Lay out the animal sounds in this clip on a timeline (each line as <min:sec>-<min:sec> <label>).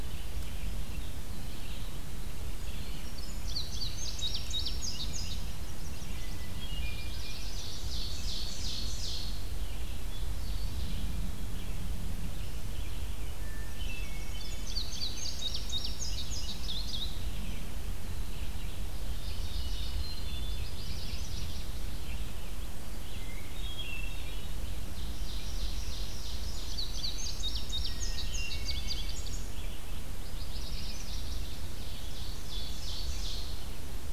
0:00.0-0:30.2 Red-eyed Vireo (Vireo olivaceus)
0:03.0-0:05.6 Indigo Bunting (Passerina cyanea)
0:05.4-0:06.6 Chestnut-sided Warbler (Setophaga pensylvanica)
0:06.3-0:07.2 Hermit Thrush (Catharus guttatus)
0:06.5-0:11.4 Ovenbird (Seiurus aurocapilla)
0:13.2-0:15.0 Hermit Thrush (Catharus guttatus)
0:14.0-0:17.2 Indigo Bunting (Passerina cyanea)
0:18.9-0:19.9 Mourning Warbler (Geothlypis philadelphia)
0:19.3-0:20.7 Hermit Thrush (Catharus guttatus)
0:20.2-0:22.0 Chestnut-sided Warbler (Setophaga pensylvanica)
0:23.1-0:24.5 Hermit Thrush (Catharus guttatus)
0:24.6-0:27.2 Ovenbird (Seiurus aurocapilla)
0:26.6-0:29.7 Indigo Bunting (Passerina cyanea)
0:30.1-0:31.6 Chestnut-sided Warbler (Setophaga pensylvanica)
0:31.3-0:33.6 Ovenbird (Seiurus aurocapilla)